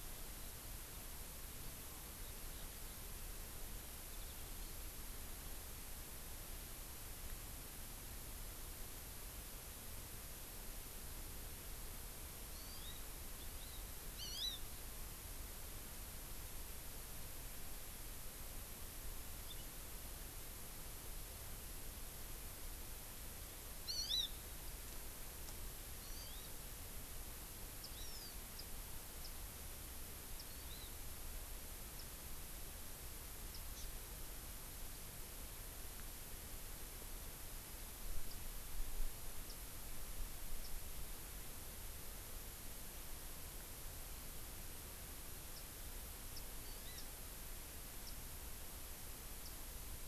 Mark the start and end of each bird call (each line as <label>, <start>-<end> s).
Hawaii Amakihi (Chlorodrepanis virens), 12.5-13.0 s
Hawaii Amakihi (Chlorodrepanis virens), 13.4-13.8 s
Hawaii Amakihi (Chlorodrepanis virens), 14.2-14.7 s
Hawaii Amakihi (Chlorodrepanis virens), 19.5-19.7 s
Hawaii Amakihi (Chlorodrepanis virens), 23.9-24.4 s
Hawaii Amakihi (Chlorodrepanis virens), 26.0-26.5 s
Warbling White-eye (Zosterops japonicus), 27.8-27.9 s
Hawaiian Hawk (Buteo solitarius), 28.0-28.4 s
Warbling White-eye (Zosterops japonicus), 28.6-28.7 s
Warbling White-eye (Zosterops japonicus), 29.2-29.3 s
Warbling White-eye (Zosterops japonicus), 30.4-30.5 s
Hawaii Amakihi (Chlorodrepanis virens), 30.5-30.9 s
Warbling White-eye (Zosterops japonicus), 32.0-32.1 s
Warbling White-eye (Zosterops japonicus), 33.5-33.6 s
Hawaii Amakihi (Chlorodrepanis virens), 33.8-33.9 s
Warbling White-eye (Zosterops japonicus), 38.3-38.4 s
Warbling White-eye (Zosterops japonicus), 39.5-39.6 s
Warbling White-eye (Zosterops japonicus), 45.6-45.7 s
Warbling White-eye (Zosterops japonicus), 46.4-46.5 s
Hawaii Amakihi (Chlorodrepanis virens), 46.8-47.1 s
Warbling White-eye (Zosterops japonicus), 47.0-47.1 s
Warbling White-eye (Zosterops japonicus), 48.1-48.2 s
Warbling White-eye (Zosterops japonicus), 49.5-49.6 s